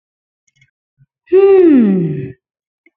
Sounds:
Sigh